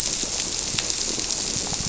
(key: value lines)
label: biophony
recorder: SoundTrap 300